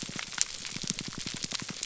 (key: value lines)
label: biophony, pulse
recorder: SoundTrap 300